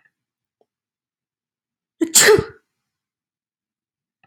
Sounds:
Sneeze